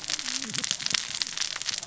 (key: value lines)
label: biophony, cascading saw
recorder: SoundTrap 600 or HydroMoth